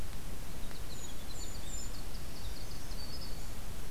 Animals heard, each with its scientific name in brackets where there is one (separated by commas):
Golden-crowned Kinglet (Regulus satrapa), Winter Wren (Troglodytes hiemalis), Black-throated Green Warbler (Setophaga virens)